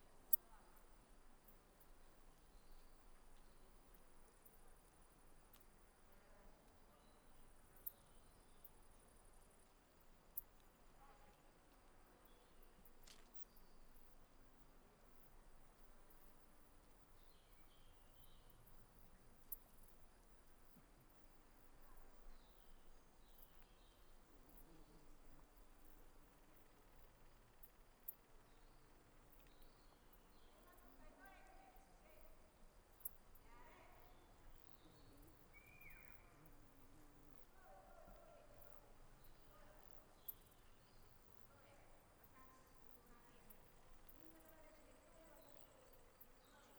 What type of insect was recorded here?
orthopteran